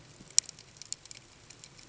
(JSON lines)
{"label": "ambient", "recorder": "HydroMoth"}